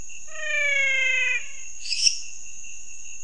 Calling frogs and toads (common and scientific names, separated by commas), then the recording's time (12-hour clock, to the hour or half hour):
menwig frog (Physalaemus albonotatus), lesser tree frog (Dendropsophus minutus)
11:30pm